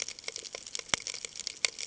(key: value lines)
label: ambient
recorder: HydroMoth